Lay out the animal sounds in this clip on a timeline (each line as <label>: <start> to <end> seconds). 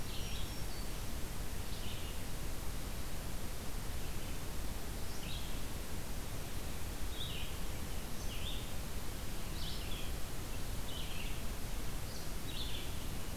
Black-throated Green Warbler (Setophaga virens): 0.0 to 1.2 seconds
Red-eyed Vireo (Vireo olivaceus): 0.0 to 13.4 seconds